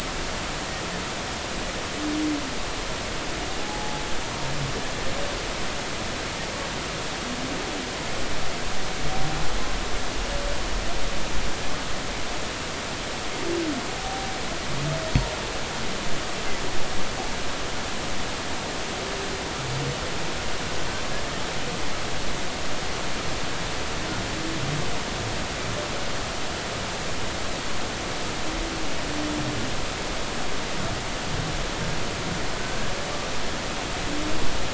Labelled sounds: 3.6	4.0	humpback whale, 0.80 to 0.90 kHz
14.0	14.3	humpback whale, 0.80 to 0.83 kHz

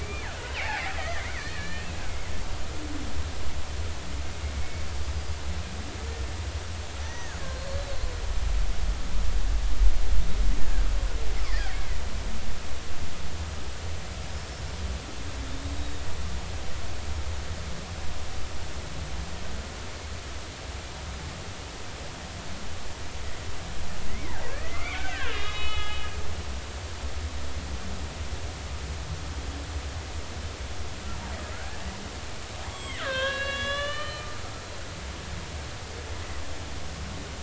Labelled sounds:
0.0	1.9	killer whale, Bigg's (transient), 0.80 to 4.3 kHz
7.0	7.8	killer whale, Bigg's (transient), 1.5 to 6.1 kHz
10.6	10.9	killer whale, Bigg's (transient), 1.5 to 1.9 kHz
11.4	12.0	killer whale, Bigg's (transient), 1.4 to 2.4 kHz
15.7	16.0	killer whale, Bigg's (transient), 3.6 to 3.9 kHz
24.1	26.2	killer whale, Bigg's (transient), 1.2 to 4.3 kHz
31.5	31.8	killer whale, Bigg's (transient), 1.3 to 1.8 kHz
32.7	34.3	killer whale, Bigg's (transient), 0.99 to 7.9 kHz

